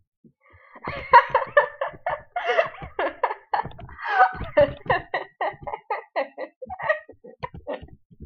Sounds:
Laughter